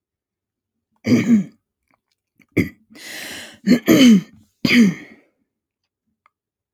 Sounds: Throat clearing